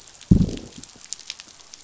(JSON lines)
{"label": "biophony, growl", "recorder": "SoundTrap 500"}